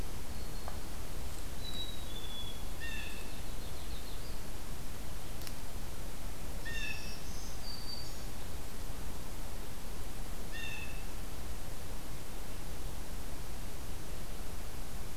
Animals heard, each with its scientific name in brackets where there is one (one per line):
Blue Jay (Cyanocitta cristata)
Black-capped Chickadee (Poecile atricapillus)
Black-throated Green Warbler (Setophaga virens)
Yellow-rumped Warbler (Setophaga coronata)